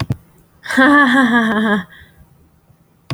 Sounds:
Laughter